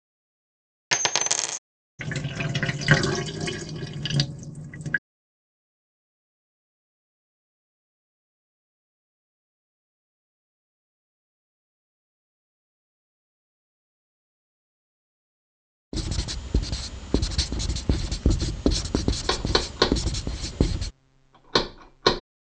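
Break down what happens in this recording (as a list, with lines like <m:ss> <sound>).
0:01 a coin drops
0:02 the sound of a sink filling or washing
0:16 you can hear writing
0:19 knocking can be heard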